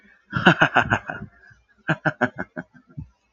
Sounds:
Laughter